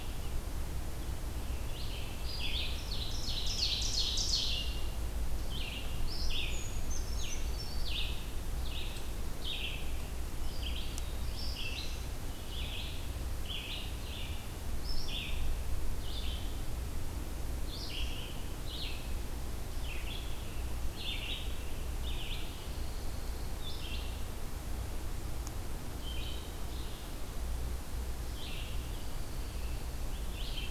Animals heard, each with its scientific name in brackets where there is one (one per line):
Brown Creeper (Certhia americana)
Red-eyed Vireo (Vireo olivaceus)
Ovenbird (Seiurus aurocapilla)
Black-throated Blue Warbler (Setophaga caerulescens)